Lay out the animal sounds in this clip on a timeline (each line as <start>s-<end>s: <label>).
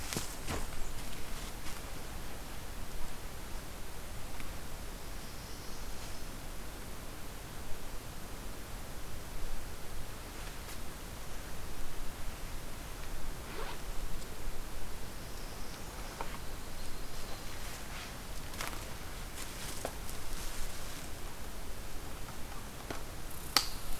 5.0s-6.4s: Northern Parula (Setophaga americana)
15.2s-16.2s: Northern Parula (Setophaga americana)
16.2s-17.8s: Yellow-rumped Warbler (Setophaga coronata)